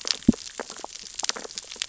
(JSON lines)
{"label": "biophony, sea urchins (Echinidae)", "recorder": "SoundTrap 600 or HydroMoth"}